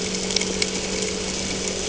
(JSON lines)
{"label": "anthrophony, boat engine", "recorder": "HydroMoth"}